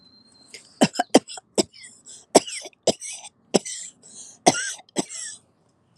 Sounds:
Cough